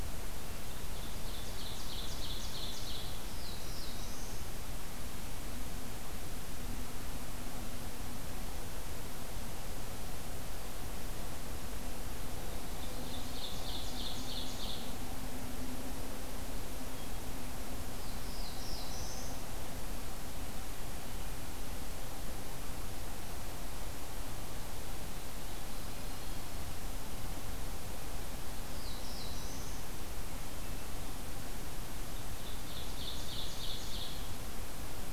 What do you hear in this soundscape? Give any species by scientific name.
Seiurus aurocapilla, Setophaga caerulescens, Catharus guttatus, Setophaga coronata